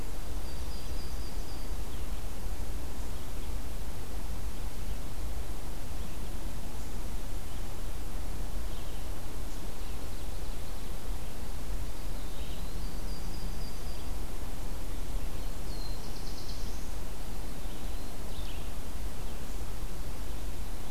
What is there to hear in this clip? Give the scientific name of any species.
Setophaga coronata, Vireo olivaceus, Seiurus aurocapilla, Contopus virens, Setophaga caerulescens